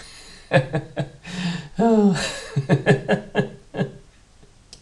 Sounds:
Laughter